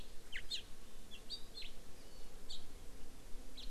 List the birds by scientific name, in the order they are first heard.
Haemorhous mexicanus, Chlorodrepanis virens